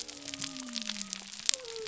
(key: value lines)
label: biophony
recorder: SoundTrap 300